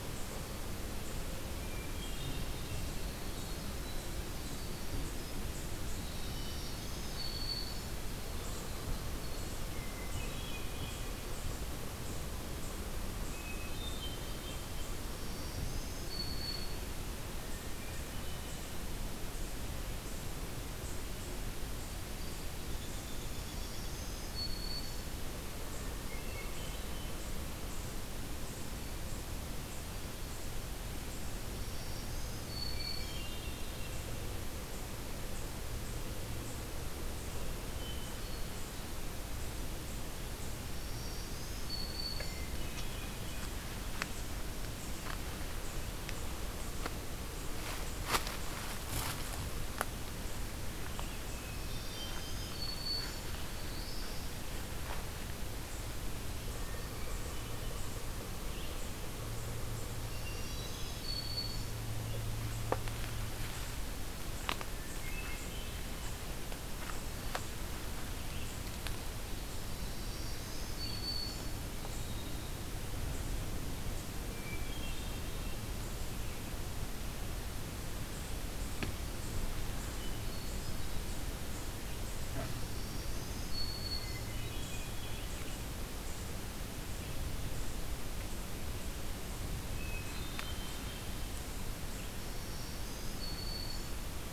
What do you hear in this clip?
Winter Wren, Hermit Thrush, Black-throated Green Warbler, Downy Woodpecker, Black-throated Blue Warbler